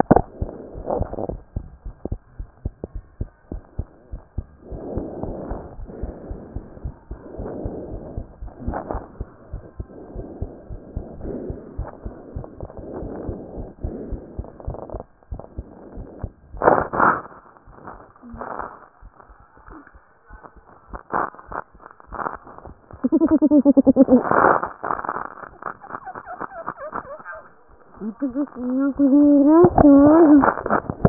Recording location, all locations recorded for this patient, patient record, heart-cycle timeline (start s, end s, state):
pulmonary valve (PV)
pulmonary valve (PV)+tricuspid valve (TV)+mitral valve (MV)
#Age: Child
#Sex: Male
#Height: 123.0 cm
#Weight: 23.1 kg
#Pregnancy status: False
#Murmur: Absent
#Murmur locations: nan
#Most audible location: nan
#Systolic murmur timing: nan
#Systolic murmur shape: nan
#Systolic murmur grading: nan
#Systolic murmur pitch: nan
#Systolic murmur quality: nan
#Diastolic murmur timing: nan
#Diastolic murmur shape: nan
#Diastolic murmur grading: nan
#Diastolic murmur pitch: nan
#Diastolic murmur quality: nan
#Outcome: Normal
#Campaign: 2014 screening campaign
0.00	2.92	unannotated
2.92	3.02	S1
3.02	3.22	systole
3.22	3.30	S2
3.30	3.50	diastole
3.50	3.60	S1
3.60	3.80	systole
3.80	3.88	S2
3.88	4.08	diastole
4.08	4.20	S1
4.20	4.38	systole
4.38	4.48	S2
4.48	4.68	diastole
4.68	4.78	S1
4.78	4.96	systole
4.96	5.06	S2
5.06	5.25	diastole
5.25	5.36	S1
5.36	5.52	systole
5.52	5.60	S2
5.60	5.79	diastole
5.79	31.09	unannotated